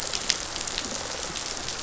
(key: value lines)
label: biophony, rattle response
recorder: SoundTrap 500